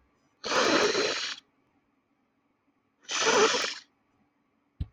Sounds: Sniff